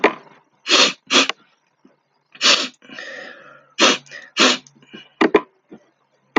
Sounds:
Sniff